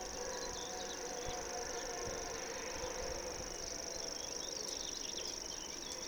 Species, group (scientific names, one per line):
Tettigonia viridissima
Orthoptera